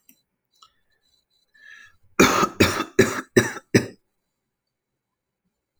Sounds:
Cough